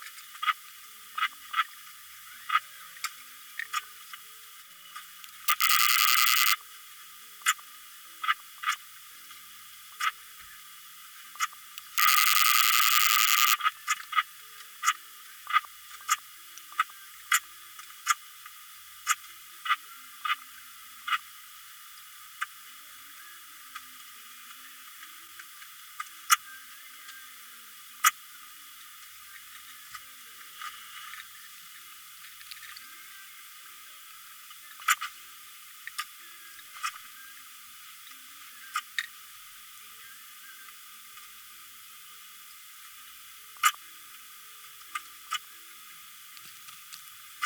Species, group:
Poecilimon ebneri
Orthoptera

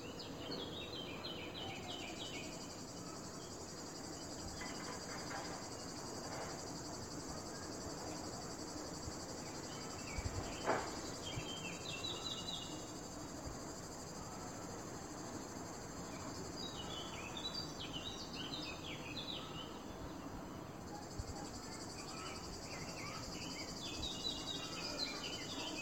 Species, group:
Lyristes plebejus
Cicadidae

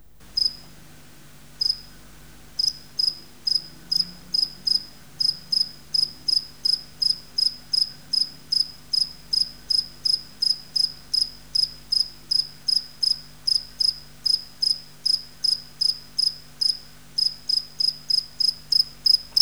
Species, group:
Gryllus bimaculatus
Orthoptera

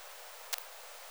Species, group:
Poecilimon jonicus
Orthoptera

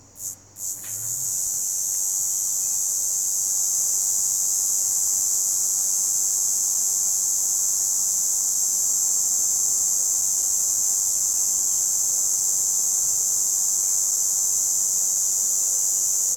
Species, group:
Tibicina haematodes
Cicadidae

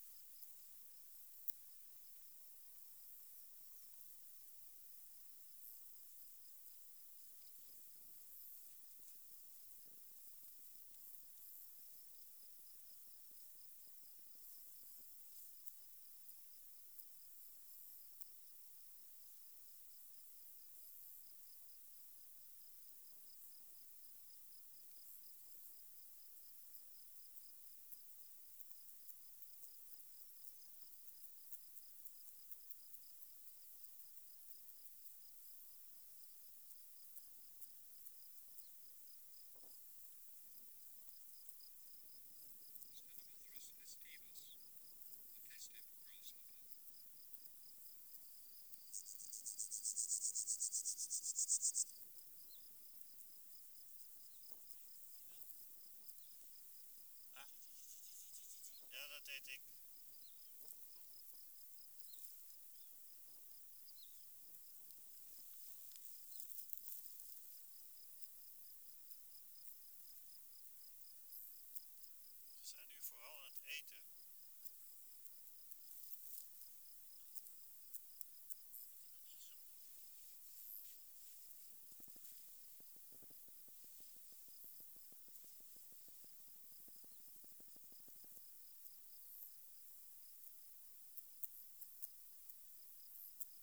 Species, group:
Stenobothrus festivus
Orthoptera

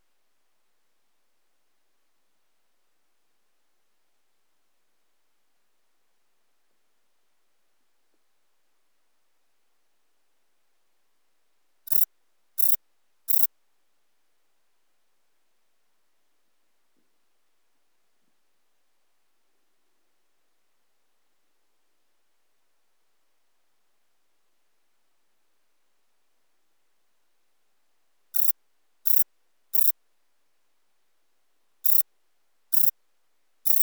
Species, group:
Rhacocleis poneli
Orthoptera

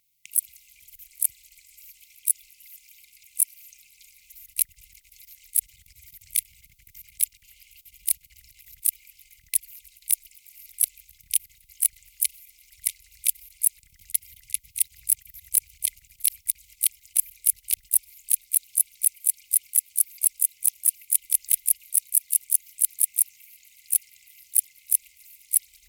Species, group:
Decticus verrucivorus
Orthoptera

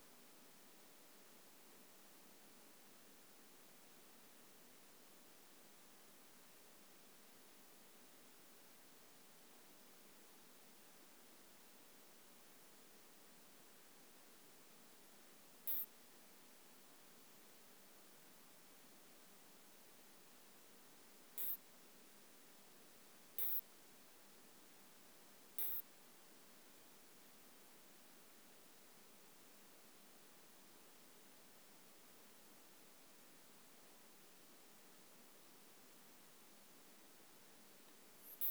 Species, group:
Isophya modestior
Orthoptera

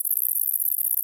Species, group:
Tettigonia viridissima
Orthoptera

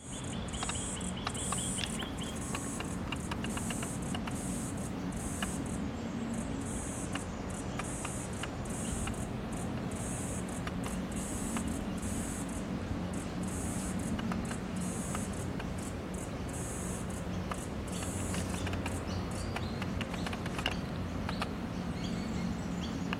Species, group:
Atrapsalta corticina
Cicadidae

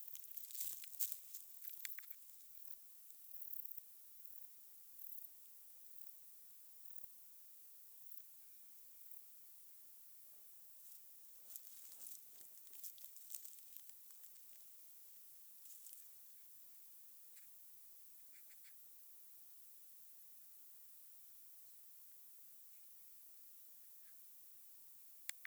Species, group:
Baetica ustulata
Orthoptera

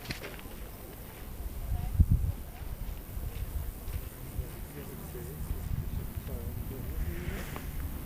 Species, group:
Roeseliana roeselii
Orthoptera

